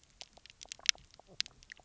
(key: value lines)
label: biophony, knock croak
recorder: SoundTrap 300